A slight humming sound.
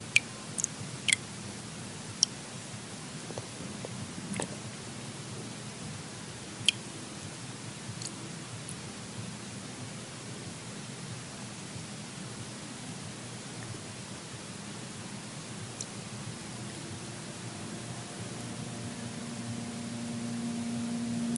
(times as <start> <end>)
19.2 21.4